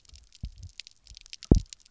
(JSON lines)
{"label": "biophony, double pulse", "recorder": "SoundTrap 300"}